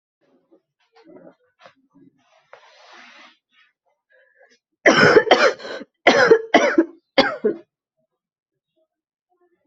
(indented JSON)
{
  "expert_labels": [
    {
      "quality": "good",
      "cough_type": "wet",
      "dyspnea": false,
      "wheezing": false,
      "stridor": false,
      "choking": false,
      "congestion": true,
      "nothing": false,
      "diagnosis": "lower respiratory tract infection",
      "severity": "mild"
    }
  ],
  "age": 42,
  "gender": "female",
  "respiratory_condition": false,
  "fever_muscle_pain": false,
  "status": "healthy"
}